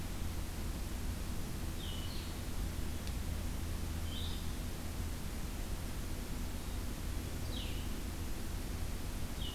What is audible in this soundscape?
Blue-headed Vireo